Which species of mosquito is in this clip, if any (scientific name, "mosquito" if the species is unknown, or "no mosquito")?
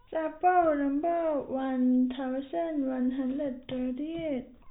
no mosquito